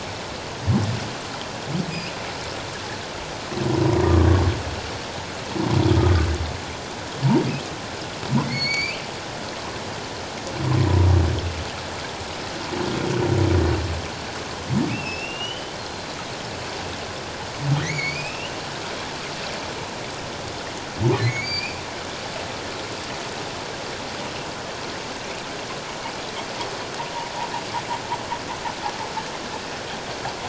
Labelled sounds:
4.0	4.3	humpback whale, 1.1 to 1.2 kHz
8.4	9.1	humpback whale, 2.0 to 6.8 kHz
14.9	16.1	humpback whale, 2.4 to 5.6 kHz
17.8	18.6	humpback whale, 1.8 to 5.4 kHz
21.2	21.8	humpback whale, 2.0 to 4.8 kHz

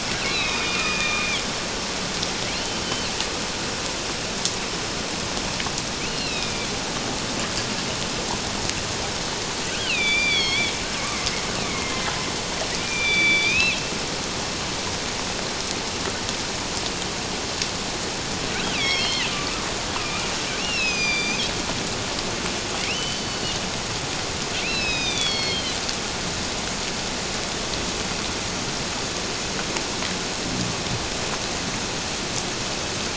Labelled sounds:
2.5	2.8	killer whale, northern resident, A clan, AA subclan, 2.6 to 3.1 kHz
6.0	6.7	killer whale, northern resident, A clan, AA subclan, A05 pod, call N04, 2.2 to 4.4 kHz
9.8	10.7	killer whale, northern resident, A clan, AA subclan, 2.1 to 4.8 kHz
11.7	13.8	killer whale, northern resident, A clan, AA subclan, 2.0 to 6.0 kHz
18.7	19.3	killer whale, northern resident, A clan, AA subclan, 1.8 to 5.5 kHz
20.6	21.4	killer whale, northern resident, A clan, AA subclan, A05 pod, call N04, 2.3 to 6.4 kHz
22.9	23.6	killer whale, northern resident, A clan, AA subclan, 2.4 to 4.7 kHz
24.6	25.8	killer whale, northern resident, A clan, AA subclan, 2.1 to 6.3 kHz

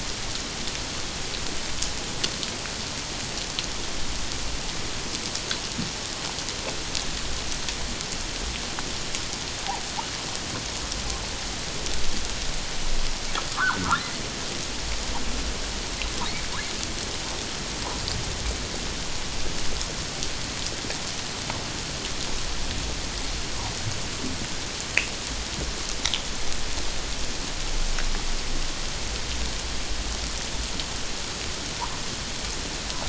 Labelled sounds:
13.5	13.8	humpback whale, 0.88 to 1.7 kHz

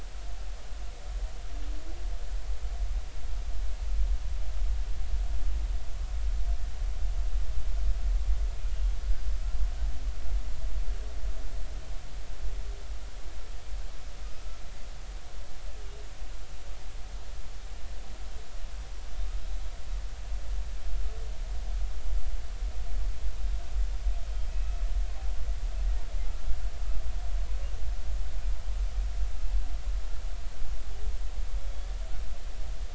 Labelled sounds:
24.5	24.9	humpback whale, 2.5 to 2.6 kHz

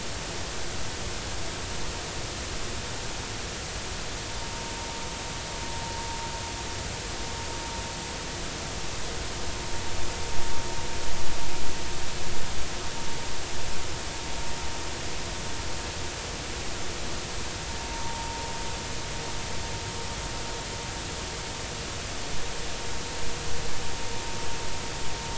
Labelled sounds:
4.4	4.7	vessel noise, 0.90 to 0.96 kHz
17.9	18.4	vessel noise, 0.83 to 0.99 kHz

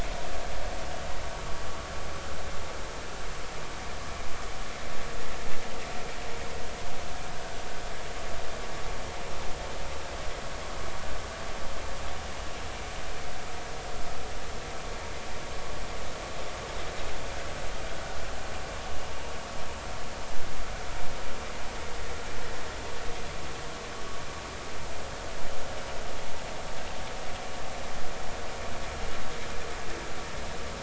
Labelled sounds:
0.8	1.1	vessel noise, 2.8 to 3.0 kHz

